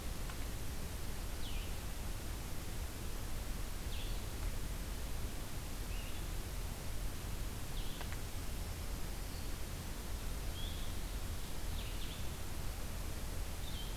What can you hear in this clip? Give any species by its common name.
Blue-headed Vireo, Black-throated Green Warbler